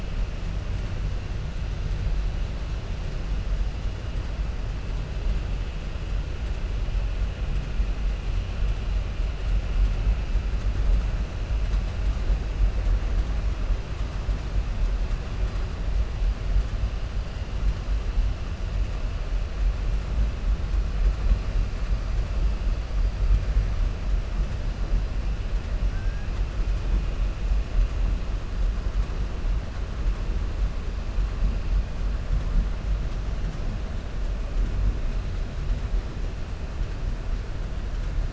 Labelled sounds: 25.9	26.3	killer whale, 0.83 to 1.7 kHz

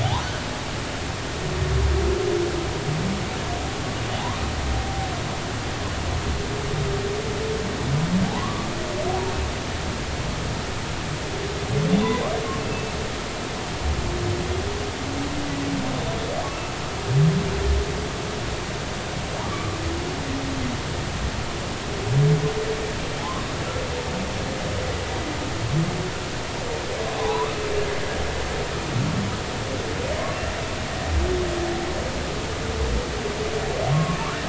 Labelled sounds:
4.1	4.4	humpback whale, 0.80 to 1.2 kHz
8.3	8.7	humpback whale, 0.80 to 1.2 kHz
12.6	12.9	humpback whale, 2.6 to 2.7 kHz
16.5	16.7	humpback whale, 2.6 to 2.8 kHz
19.5	19.8	humpback whale, 1.1 to 1.2 kHz
24.2	24.4	humpback whale, 0.80 to 1.2 kHz
27.2	27.6	humpback whale, 0.80 to 1.3 kHz
33.9	34.2	humpback whale, 1.0 to 1.2 kHz

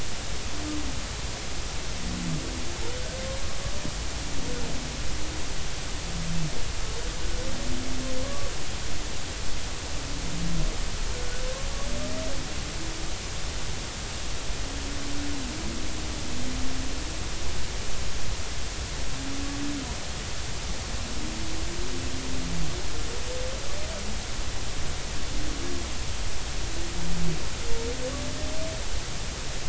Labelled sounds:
8.2	8.5	humpback whale, 0.99 to 1.2 kHz

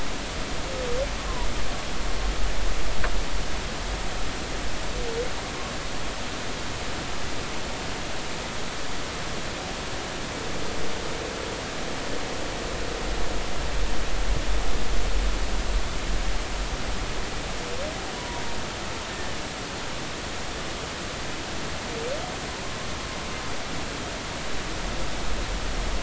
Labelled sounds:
18.2	18.4	humpback whale, 0.90 to 1.0 kHz

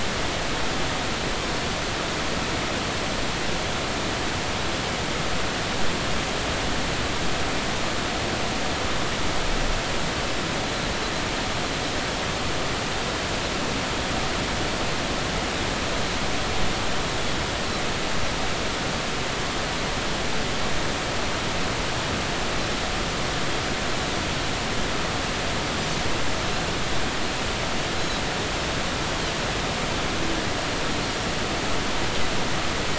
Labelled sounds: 28.0	28.2	Pacific white-sided dolphin, 3.8 to 4.1 kHz

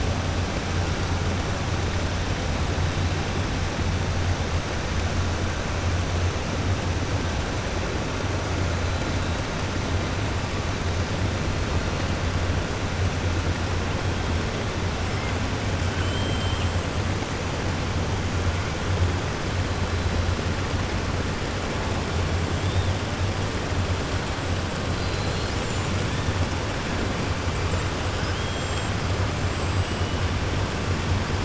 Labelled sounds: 15.9	16.7	killer whale, 2.5 to 4.0 kHz

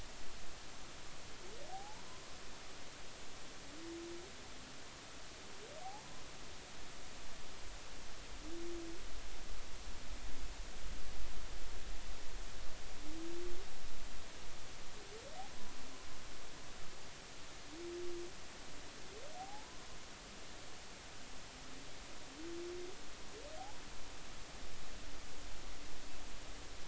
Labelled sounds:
1.7	2.0	humpback whale, 0.80 to 1.0 kHz
5.8	6.0	humpback whale, 0.80 to 0.93 kHz
19.4	19.9	humpback whale, 0.80 to 1.1 kHz

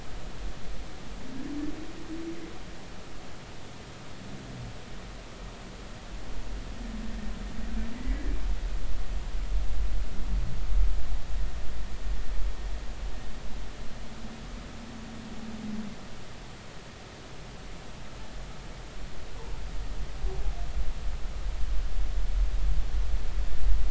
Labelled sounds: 8.0	8.3	humpback whale, 1.9 to 2.0 kHz

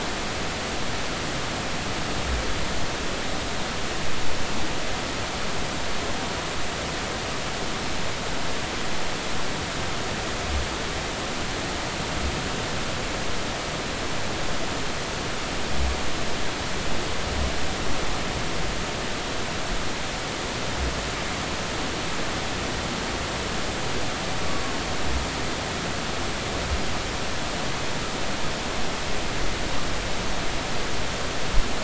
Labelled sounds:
24.5	24.7	humpback whale, 1.1 to 1.2 kHz

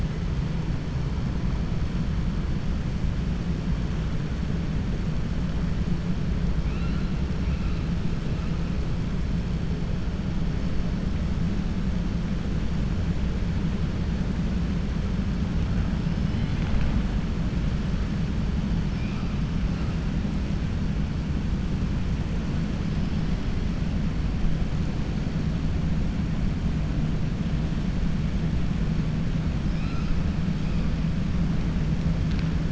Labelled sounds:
6.6	7.1	killer whale, 1.3 to 4.2 kHz

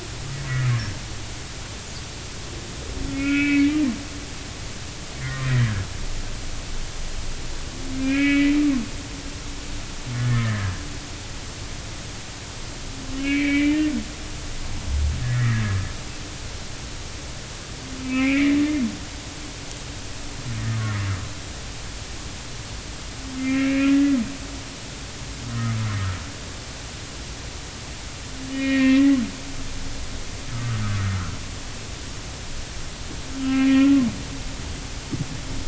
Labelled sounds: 3.1	3.8	humpback whale, 1.3 to 2.7 kHz
5.2	5.8	humpback whale, 1.5 to 2.1 kHz
8.0	8.5	humpback whale, 1.6 to 3.2 kHz
10.3	10.7	humpback whale, 1.6 to 2.0 kHz
13.2	13.9	humpback whale, 1.9 to 3.1 kHz
15.2	15.6	humpback whale, 1.6 to 2.1 kHz
18.0	18.6	humpback whale, 1.2 to 2.8 kHz
23.4	24.2	humpback whale, 1.6 to 2.8 kHz
25.5	25.8	humpback whale, 1.2 to 1.5 kHz
28.5	29.2	humpback whale, 1.8 to 3.0 kHz
30.5	31.0	humpback whale, 1.1 to 1.7 kHz
33.4	34.0	humpback whale, 1.3 to 2.8 kHz

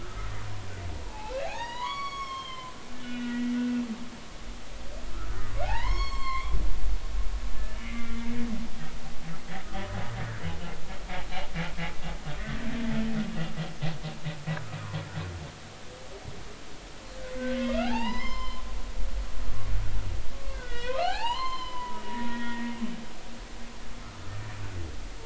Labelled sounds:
0.0	2.7	humpback whale, 0.80 to 6.9 kHz
3.0	3.5	humpback whale, 1.4 to 3.5 kHz
5.6	6.6	humpback whale, 0.80 to 7.7 kHz
7.7	8.1	humpback whale, 2.0 to 3.0 kHz
17.4	18.6	humpback whale, 0.80 to 5.4 kHz
20.5	22.0	humpback whale, 0.80 to 5.2 kHz
22.3	22.7	humpback whale, 1.8 to 3.4 kHz

